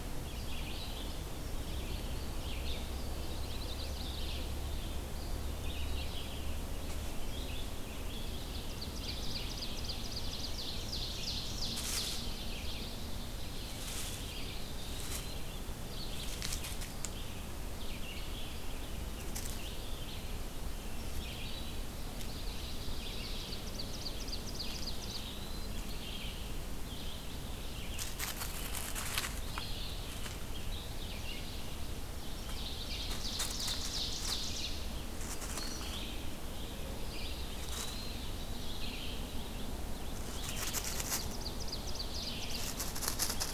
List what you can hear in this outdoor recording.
Red-eyed Vireo, Indigo Bunting, Chestnut-sided Warbler, Eastern Wood-Pewee, Ovenbird